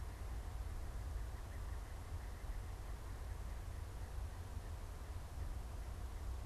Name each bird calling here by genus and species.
unidentified bird